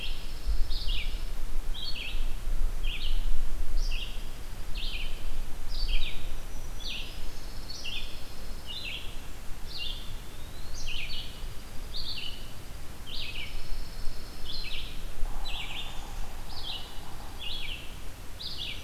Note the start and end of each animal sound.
[0.00, 1.33] Dark-eyed Junco (Junco hyemalis)
[0.00, 18.83] Red-eyed Vireo (Vireo olivaceus)
[3.96, 5.30] Dark-eyed Junco (Junco hyemalis)
[6.27, 7.60] Black-throated Green Warbler (Setophaga virens)
[7.16, 8.83] Pine Warbler (Setophaga pinus)
[9.94, 10.89] Eastern Wood-Pewee (Contopus virens)
[11.05, 12.98] Dark-eyed Junco (Junco hyemalis)
[13.32, 14.92] Pine Warbler (Setophaga pinus)
[15.14, 17.59] Yellow-bellied Sapsucker (Sphyrapicus varius)
[15.38, 16.31] Golden-crowned Kinglet (Regulus satrapa)
[16.32, 17.74] Dark-eyed Junco (Junco hyemalis)

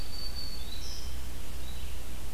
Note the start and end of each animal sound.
[0.00, 1.27] Black-throated Green Warbler (Setophaga virens)
[0.00, 2.34] Red-eyed Vireo (Vireo olivaceus)

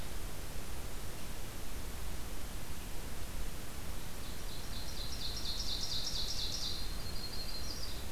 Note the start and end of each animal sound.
[4.18, 6.85] Ovenbird (Seiurus aurocapilla)
[6.64, 8.05] Yellow-rumped Warbler (Setophaga coronata)

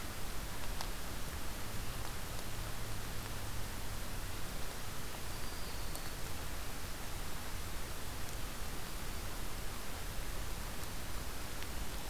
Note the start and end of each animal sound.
[5.03, 6.26] Black-throated Green Warbler (Setophaga virens)

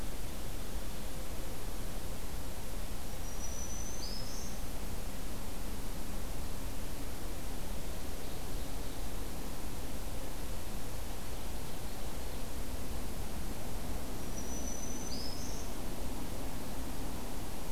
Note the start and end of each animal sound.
[2.99, 4.61] Black-throated Green Warbler (Setophaga virens)
[7.63, 9.42] Ovenbird (Seiurus aurocapilla)
[14.09, 15.65] Black-throated Green Warbler (Setophaga virens)

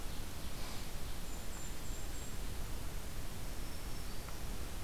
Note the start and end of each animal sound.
[0.29, 1.91] Ovenbird (Seiurus aurocapilla)
[1.07, 2.67] Golden-crowned Kinglet (Regulus satrapa)
[3.31, 4.63] Black-throated Green Warbler (Setophaga virens)

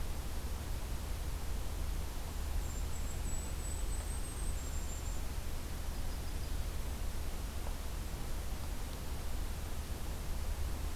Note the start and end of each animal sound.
[2.23, 5.22] Golden-crowned Kinglet (Regulus satrapa)
[5.87, 6.79] Yellow-rumped Warbler (Setophaga coronata)

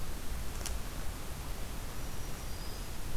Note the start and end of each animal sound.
[1.84, 3.17] Black-throated Green Warbler (Setophaga virens)

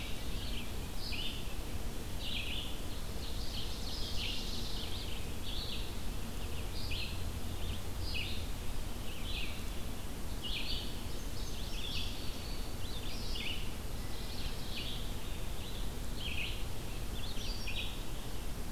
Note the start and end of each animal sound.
[0.00, 5.95] Red-eyed Vireo (Vireo olivaceus)
[2.94, 4.91] Ovenbird (Seiurus aurocapilla)
[6.40, 18.71] Red-eyed Vireo (Vireo olivaceus)
[10.96, 12.97] Indigo Bunting (Passerina cyanea)

